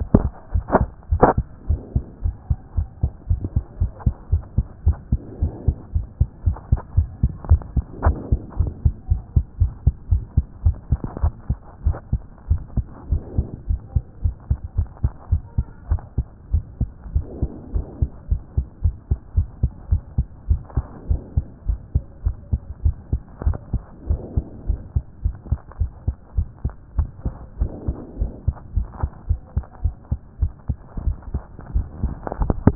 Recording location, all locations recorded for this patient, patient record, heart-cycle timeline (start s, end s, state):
tricuspid valve (TV)
aortic valve (AV)+pulmonary valve (PV)+tricuspid valve (TV)+mitral valve (MV)
#Age: Child
#Sex: Female
#Height: 116.0 cm
#Weight: 17.5 kg
#Pregnancy status: False
#Murmur: Absent
#Murmur locations: nan
#Most audible location: nan
#Systolic murmur timing: nan
#Systolic murmur shape: nan
#Systolic murmur grading: nan
#Systolic murmur pitch: nan
#Systolic murmur quality: nan
#Diastolic murmur timing: nan
#Diastolic murmur shape: nan
#Diastolic murmur grading: nan
#Diastolic murmur pitch: nan
#Diastolic murmur quality: nan
#Outcome: Abnormal
#Campaign: 2014 screening campaign
0.00	1.52	unannotated
1.52	1.68	diastole
1.68	1.80	S1
1.80	1.94	systole
1.94	2.04	S2
2.04	2.24	diastole
2.24	2.34	S1
2.34	2.48	systole
2.48	2.58	S2
2.58	2.76	diastole
2.76	2.88	S1
2.88	3.02	systole
3.02	3.12	S2
3.12	3.30	diastole
3.30	3.40	S1
3.40	3.54	systole
3.54	3.64	S2
3.64	3.80	diastole
3.80	3.92	S1
3.92	4.04	systole
4.04	4.14	S2
4.14	4.32	diastole
4.32	4.42	S1
4.42	4.56	systole
4.56	4.66	S2
4.66	4.86	diastole
4.86	4.96	S1
4.96	5.10	systole
5.10	5.20	S2
5.20	5.40	diastole
5.40	5.52	S1
5.52	5.66	systole
5.66	5.76	S2
5.76	5.94	diastole
5.94	6.06	S1
6.06	6.20	systole
6.20	6.28	S2
6.28	6.46	diastole
6.46	6.56	S1
6.56	6.70	systole
6.70	6.80	S2
6.80	6.96	diastole
6.96	7.08	S1
7.08	7.22	systole
7.22	7.32	S2
7.32	7.48	diastole
7.48	7.62	S1
7.62	7.76	systole
7.76	7.84	S2
7.84	8.04	diastole
8.04	8.16	S1
8.16	8.30	systole
8.30	8.40	S2
8.40	8.58	diastole
8.58	8.72	S1
8.72	8.84	systole
8.84	8.94	S2
8.94	9.10	diastole
9.10	9.22	S1
9.22	9.34	systole
9.34	9.44	S2
9.44	9.60	diastole
9.60	9.72	S1
9.72	9.86	systole
9.86	9.94	S2
9.94	10.10	diastole
10.10	10.24	S1
10.24	10.36	systole
10.36	10.46	S2
10.46	10.64	diastole
10.64	10.76	S1
10.76	10.90	systole
10.90	11.00	S2
11.00	11.22	diastole
11.22	11.34	S1
11.34	11.48	systole
11.48	11.58	S2
11.58	11.84	diastole
11.84	11.96	S1
11.96	12.12	systole
12.12	12.20	S2
12.20	12.50	diastole
12.50	12.62	S1
12.62	12.76	systole
12.76	12.86	S2
12.86	13.10	diastole
13.10	13.22	S1
13.22	13.36	systole
13.36	13.46	S2
13.46	13.68	diastole
13.68	13.80	S1
13.80	13.94	systole
13.94	14.04	S2
14.04	14.24	diastole
14.24	14.34	S1
14.34	14.50	systole
14.50	14.58	S2
14.58	14.76	diastole
14.76	14.88	S1
14.88	15.02	systole
15.02	15.12	S2
15.12	15.30	diastole
15.30	15.42	S1
15.42	15.56	systole
15.56	15.66	S2
15.66	15.90	diastole
15.90	16.00	S1
16.00	16.16	systole
16.16	16.26	S2
16.26	16.52	diastole
16.52	16.64	S1
16.64	16.80	systole
16.80	16.90	S2
16.90	17.14	diastole
17.14	17.26	S1
17.26	17.40	systole
17.40	17.50	S2
17.50	17.74	diastole
17.74	17.86	S1
17.86	18.00	systole
18.00	18.10	S2
18.10	18.30	diastole
18.30	18.42	S1
18.42	18.56	systole
18.56	18.66	S2
18.66	18.84	diastole
18.84	18.94	S1
18.94	19.10	systole
19.10	19.18	S2
19.18	19.36	diastole
19.36	19.48	S1
19.48	19.62	systole
19.62	19.72	S2
19.72	19.90	diastole
19.90	20.02	S1
20.02	20.16	systole
20.16	20.26	S2
20.26	20.48	diastole
20.48	20.60	S1
20.60	20.76	systole
20.76	20.84	S2
20.84	21.08	diastole
21.08	21.20	S1
21.20	21.36	systole
21.36	21.46	S2
21.46	21.68	diastole
21.68	21.78	S1
21.78	21.94	systole
21.94	22.04	S2
22.04	22.24	diastole
22.24	22.36	S1
22.36	22.52	systole
22.52	22.60	S2
22.60	22.84	diastole
22.84	22.96	S1
22.96	23.12	systole
23.12	23.20	S2
23.20	23.44	diastole
23.44	23.56	S1
23.56	23.72	systole
23.72	23.82	S2
23.82	24.08	diastole
24.08	24.20	S1
24.20	24.36	systole
24.36	24.44	S2
24.44	24.68	diastole
24.68	24.80	S1
24.80	24.94	systole
24.94	25.04	S2
25.04	25.24	diastole
25.24	25.34	S1
25.34	25.50	systole
25.50	25.60	S2
25.60	25.80	diastole
25.80	25.90	S1
25.90	26.06	systole
26.06	26.16	S2
26.16	26.36	diastole
26.36	26.48	S1
26.48	26.64	systole
26.64	26.72	S2
26.72	26.96	diastole
26.96	27.08	S1
27.08	27.24	systole
27.24	27.34	S2
27.34	27.60	diastole
27.60	27.70	S1
27.70	27.86	systole
27.86	27.96	S2
27.96	28.20	diastole
28.20	28.32	S1
28.32	28.46	systole
28.46	28.56	S2
28.56	28.76	diastole
28.76	28.88	S1
28.88	29.02	systole
29.02	29.10	S2
29.10	29.28	diastole
29.28	29.40	S1
29.40	29.56	systole
29.56	29.64	S2
29.64	29.84	diastole
29.84	29.94	S1
29.94	30.10	systole
30.10	30.20	S2
30.20	30.40	diastole
30.40	32.75	unannotated